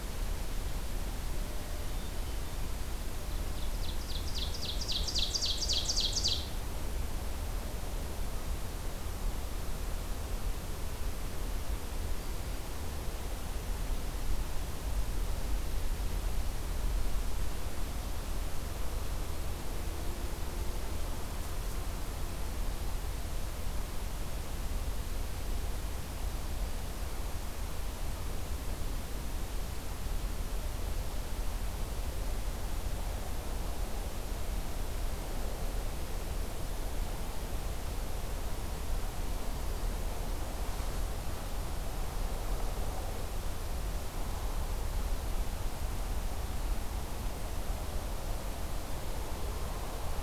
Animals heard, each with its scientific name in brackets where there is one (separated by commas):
Ovenbird (Seiurus aurocapilla)